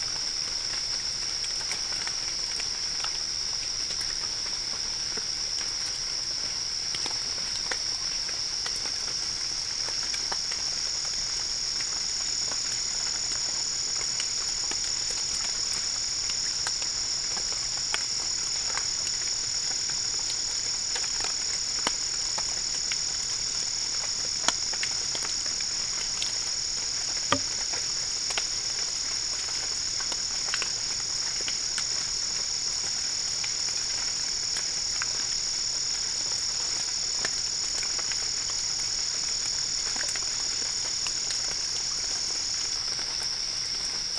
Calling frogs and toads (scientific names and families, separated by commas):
none